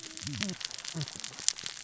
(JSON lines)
{"label": "biophony, cascading saw", "recorder": "SoundTrap 600 or HydroMoth"}